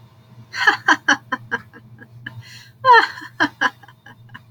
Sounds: Laughter